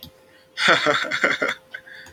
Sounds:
Laughter